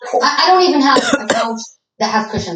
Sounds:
Cough